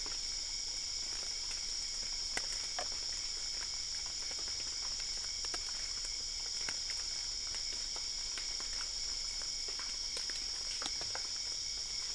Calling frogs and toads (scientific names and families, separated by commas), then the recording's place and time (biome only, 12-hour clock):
none
Cerrado, 1:45am